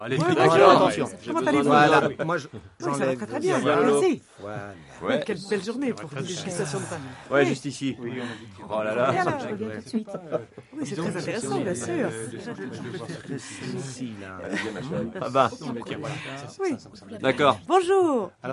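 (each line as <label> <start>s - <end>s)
Several French conversations overlap with no clear gaps audible. 0.0s - 18.5s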